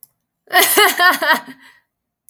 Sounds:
Laughter